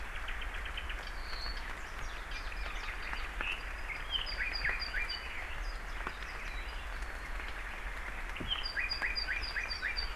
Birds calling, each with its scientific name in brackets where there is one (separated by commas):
Warbling White-eye (Zosterops japonicus), Apapane (Himatione sanguinea), Red-billed Leiothrix (Leiothrix lutea)